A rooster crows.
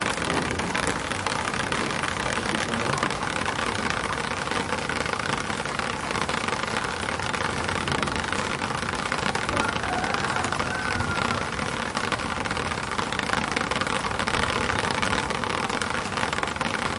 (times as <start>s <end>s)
9.6s 11.4s